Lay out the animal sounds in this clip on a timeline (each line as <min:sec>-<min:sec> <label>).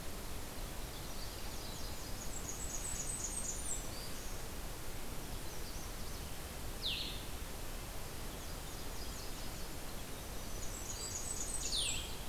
0:01.2-0:02.9 Nashville Warbler (Leiothlypis ruficapilla)
0:02.3-0:04.0 Blackburnian Warbler (Setophaga fusca)
0:03.1-0:04.5 Black-throated Green Warbler (Setophaga virens)
0:05.1-0:06.2 Canada Warbler (Cardellina canadensis)
0:06.7-0:07.3 Blue-headed Vireo (Vireo solitarius)
0:08.2-0:10.0 Nashville Warbler (Leiothlypis ruficapilla)
0:09.9-0:11.5 Black-throated Green Warbler (Setophaga virens)
0:10.4-0:12.3 Blackburnian Warbler (Setophaga fusca)
0:11.5-0:12.0 Blue-headed Vireo (Vireo solitarius)